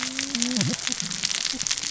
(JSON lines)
{"label": "biophony, cascading saw", "recorder": "SoundTrap 600 or HydroMoth"}